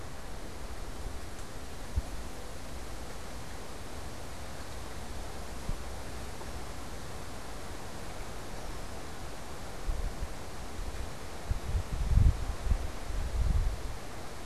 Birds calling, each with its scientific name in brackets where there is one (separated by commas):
Red-winged Blackbird (Agelaius phoeniceus)